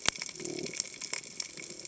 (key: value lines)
label: biophony
recorder: HydroMoth